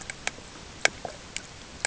{"label": "ambient", "recorder": "HydroMoth"}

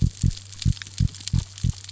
{"label": "biophony", "recorder": "SoundTrap 600 or HydroMoth"}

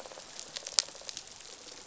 {"label": "biophony", "recorder": "SoundTrap 500"}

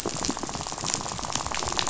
{"label": "biophony, rattle", "recorder": "SoundTrap 500"}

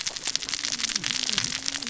{"label": "biophony, cascading saw", "recorder": "SoundTrap 600 or HydroMoth"}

